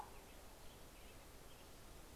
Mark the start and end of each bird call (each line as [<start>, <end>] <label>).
[0.00, 1.00] Common Raven (Corvus corax)
[0.00, 2.15] American Robin (Turdus migratorius)